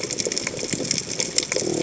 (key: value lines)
label: biophony
recorder: HydroMoth